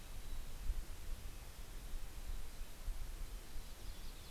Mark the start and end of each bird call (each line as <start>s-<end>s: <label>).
0.0s-0.6s: Mountain Chickadee (Poecile gambeli)
0.0s-4.3s: Red-breasted Nuthatch (Sitta canadensis)
2.8s-4.3s: Yellow-rumped Warbler (Setophaga coronata)
3.3s-4.3s: Mountain Chickadee (Poecile gambeli)